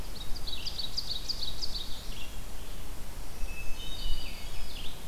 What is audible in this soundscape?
Black-throated Blue Warbler, Red-eyed Vireo, Ovenbird, Black-throated Green Warbler, Hermit Thrush